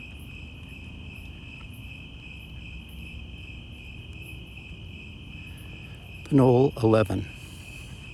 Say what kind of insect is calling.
orthopteran